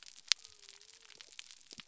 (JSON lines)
{"label": "biophony", "recorder": "SoundTrap 300"}